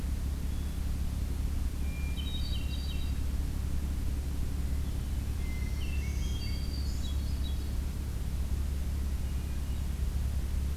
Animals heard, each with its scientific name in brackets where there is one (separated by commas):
Black-throated Green Warbler (Setophaga virens), Hermit Thrush (Catharus guttatus)